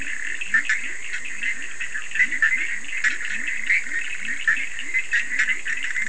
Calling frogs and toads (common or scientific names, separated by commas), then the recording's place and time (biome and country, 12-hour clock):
Bischoff's tree frog, Leptodactylus latrans, Cochran's lime tree frog
Atlantic Forest, Brazil, 1:30am